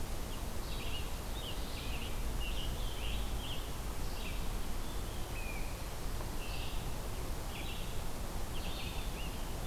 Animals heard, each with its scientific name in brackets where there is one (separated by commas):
Blue Jay (Cyanocitta cristata), Red-eyed Vireo (Vireo olivaceus), Scarlet Tanager (Piranga olivacea)